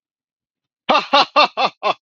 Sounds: Laughter